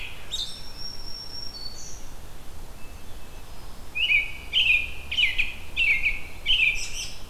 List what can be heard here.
American Robin, Black-throated Green Warbler, Hermit Thrush